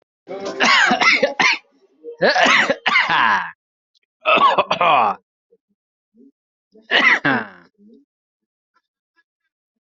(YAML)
expert_labels:
- quality: ok
  cough_type: dry
  dyspnea: false
  wheezing: false
  stridor: false
  choking: false
  congestion: false
  nothing: true
  diagnosis: healthy cough
  severity: pseudocough/healthy cough
age: 35
gender: male
respiratory_condition: false
fever_muscle_pain: false
status: COVID-19